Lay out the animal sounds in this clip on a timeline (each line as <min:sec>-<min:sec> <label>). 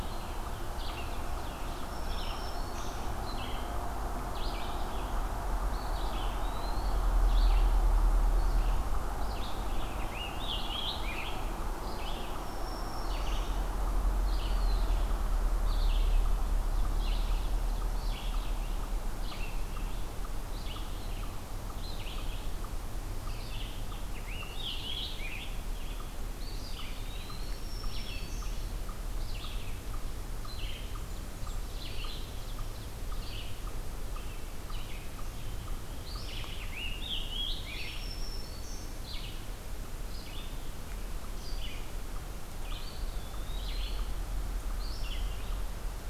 0:00.0-0:39.5 Red-eyed Vireo (Vireo olivaceus)
0:01.6-0:03.2 Black-throated Green Warbler (Setophaga virens)
0:05.2-0:07.2 Eastern Wood-Pewee (Contopus virens)
0:09.3-0:11.7 Scarlet Tanager (Piranga olivacea)
0:12.3-0:13.7 Black-throated Green Warbler (Setophaga virens)
0:14.2-0:15.2 Eastern Wood-Pewee (Contopus virens)
0:26.3-0:27.8 Eastern Wood-Pewee (Contopus virens)
0:27.3-0:28.7 Black-throated Green Warbler (Setophaga virens)
0:36.4-0:38.2 Scarlet Tanager (Piranga olivacea)
0:37.5-0:39.0 Black-throated Green Warbler (Setophaga virens)
0:40.0-0:46.1 Red-eyed Vireo (Vireo olivaceus)
0:42.5-0:44.2 Eastern Wood-Pewee (Contopus virens)